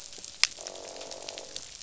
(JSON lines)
{"label": "biophony, croak", "recorder": "SoundTrap 500"}